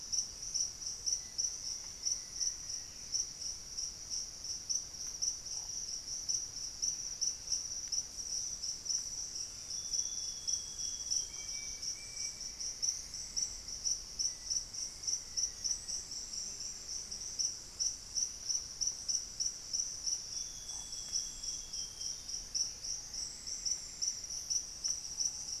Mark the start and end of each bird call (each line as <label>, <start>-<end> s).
Black-faced Antthrush (Formicarius analis), 0.7-3.2 s
Amazonian Grosbeak (Cyanoloxia rothschildii), 9.5-11.7 s
Ringed Woodpecker (Celeus torquatus), 11.1-12.7 s
Plumbeous Antbird (Myrmelastes hyperythrus), 12.2-13.9 s
Black-faced Antthrush (Formicarius analis), 14.0-16.4 s
Thrush-like Wren (Campylorhynchus turdinus), 17.3-19.7 s
Amazonian Grosbeak (Cyanoloxia rothschildii), 20.1-22.4 s
Plumbeous Antbird (Myrmelastes hyperythrus), 22.3-24.5 s
Ruddy Pigeon (Patagioenas subvinacea), 22.8-25.6 s